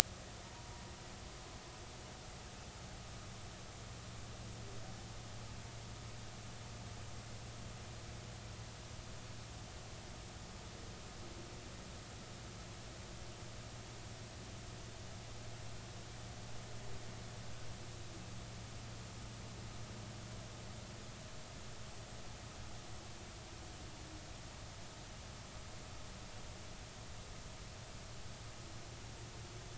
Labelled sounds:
0.4	0.7	humpback whale, 0.86 to 0.99 kHz

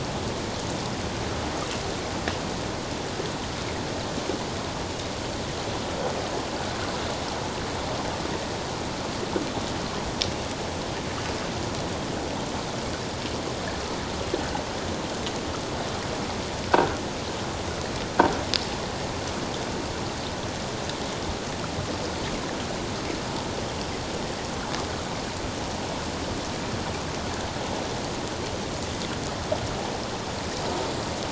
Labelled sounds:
16.7	17.0	Pacific white-sided dolphin, 1.3 to 1.6 kHz

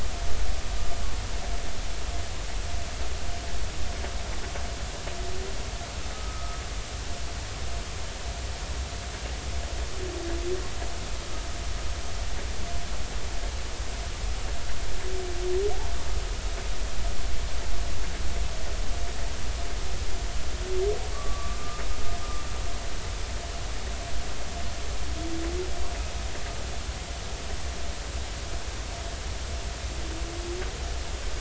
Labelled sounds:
6.1	6.6	humpback whale, 1.2 to 1.3 kHz
21.1	21.8	humpback whale, 1.1 to 1.2 kHz

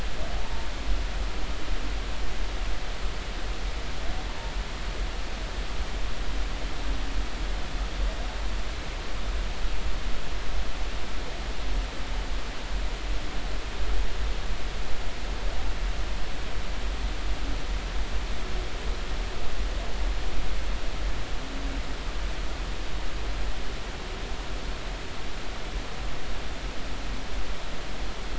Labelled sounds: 0.4	0.7	humpback whale, 0.86 to 0.96 kHz

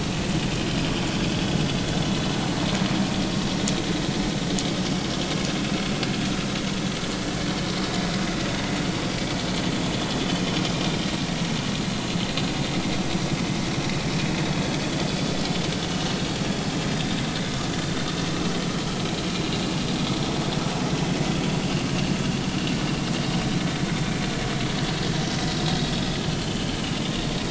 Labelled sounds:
1.2	1.6	vessel noise, 3.3 to 3.5 kHz
10.7	11.0	vessel noise, 2.3 to 2.4 kHz
16.2	16.5	vessel noise, 3.2 to 3.4 kHz
19.0	19.3	vessel noise, 3.9 to 4.2 kHz
26.4	26.7	vessel noise, 2.8 to 3.2 kHz

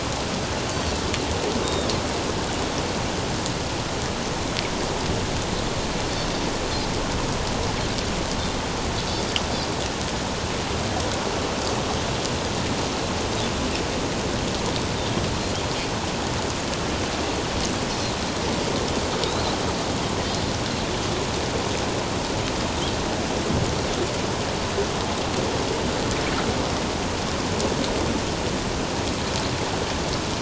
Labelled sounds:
0.7	1.9	Pacific white-sided dolphin, 3.6 to 7.5 kHz
19.2	19.6	Pacific white-sided dolphin, 3.7 to 4.1 kHz

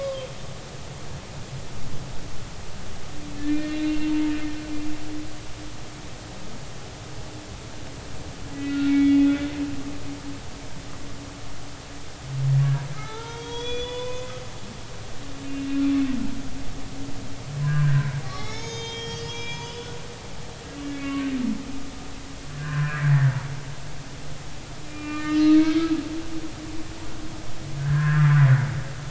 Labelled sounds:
1.0	1.3	humpback whale, 3.1 to 3.3 kHz
3.5	4.1	humpback whale, 2.3 to 2.8 kHz
8.5	9.2	humpback whale, 1.8 to 4.5 kHz
13.0	14.3	humpback whale, 0.83 to 6.2 kHz
15.5	16.1	humpback whale, 2.6 to 2.8 kHz
17.6	19.9	humpback whale, 0.80 to 7.1 kHz
20.8	21.3	humpback whale, 1.1 to 2.3 kHz
22.5	23.3	humpback whale, 0.99 to 1.9 kHz
24.9	26.3	humpback whale, 1.2 to 3.1 kHz
27.8	28.4	humpback whale, 0.99 to 1.9 kHz

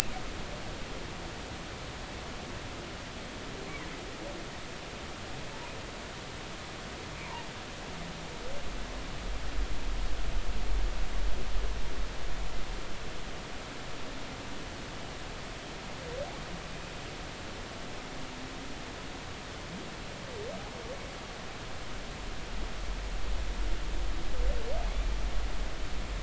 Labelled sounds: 24.9	25.2	humpback whale, 2.1 to 2.4 kHz

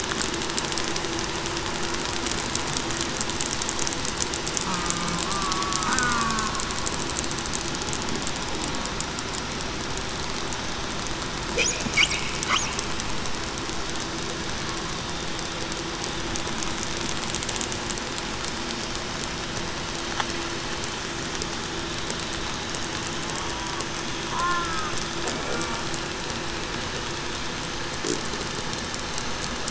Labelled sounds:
5.2	6.2	killer whale, southern resident, 1.0 to 1.6 kHz
23.4	23.8	killer whale, southern resident, 0.91 to 0.98 kHz
24.3	24.6	killer whale, southern resident, 0.91 to 1.1 kHz

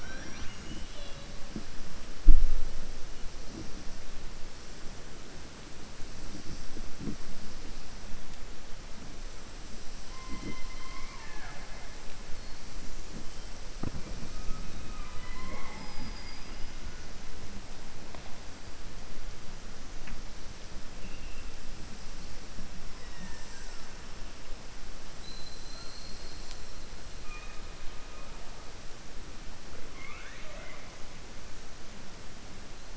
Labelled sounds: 15.7	16.6	killer whale, southern resident, 4.8 to 5.3 kHz
29.8	30.9	killer whale, southern resident, 0.59 to 3.8 kHz

